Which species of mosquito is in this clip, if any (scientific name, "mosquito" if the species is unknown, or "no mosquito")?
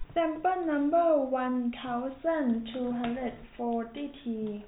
no mosquito